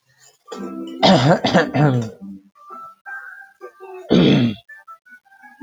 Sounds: Throat clearing